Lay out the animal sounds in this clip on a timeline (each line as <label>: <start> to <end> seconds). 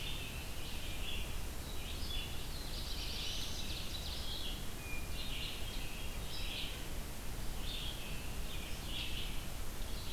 Eastern Wood-Pewee (Contopus virens): 0.0 to 0.6 seconds
Red-eyed Vireo (Vireo olivaceus): 0.0 to 10.1 seconds
Black-throated Blue Warbler (Setophaga caerulescens): 2.1 to 3.8 seconds
Ovenbird (Seiurus aurocapilla): 3.0 to 4.3 seconds
Hermit Thrush (Catharus guttatus): 4.7 to 5.9 seconds